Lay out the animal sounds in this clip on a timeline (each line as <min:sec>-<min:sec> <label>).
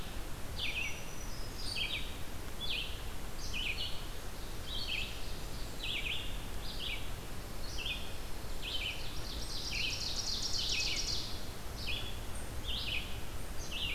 0:00.0-0:13.9 Red-eyed Vireo (Vireo olivaceus)
0:00.4-0:01.9 Black-throated Green Warbler (Setophaga virens)
0:04.2-0:05.9 Ovenbird (Seiurus aurocapilla)
0:08.9-0:11.4 Ovenbird (Seiurus aurocapilla)